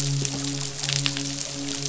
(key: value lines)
label: biophony, midshipman
recorder: SoundTrap 500